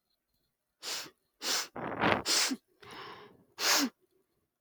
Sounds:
Sniff